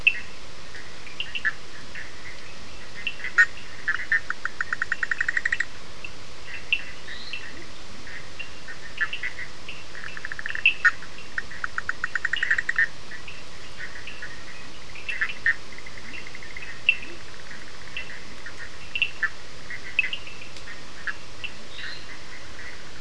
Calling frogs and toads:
Sphaenorhynchus surdus (Hylidae), Boana bischoffi (Hylidae), Dendropsophus minutus (Hylidae), Leptodactylus latrans (Leptodactylidae)
Atlantic Forest, Brazil, 11:00pm

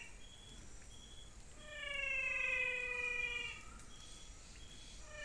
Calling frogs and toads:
Physalaemus albonotatus (Leptodactylidae)
Cerrado, Brazil, 5:45pm

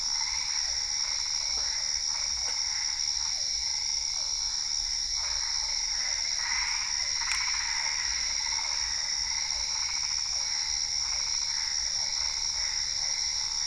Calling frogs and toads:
Boana albopunctata (Hylidae), Boana lundii (Hylidae), Physalaemus cuvieri (Leptodactylidae)
Cerrado, Brazil, 8:30pm

